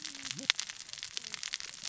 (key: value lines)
label: biophony, cascading saw
recorder: SoundTrap 600 or HydroMoth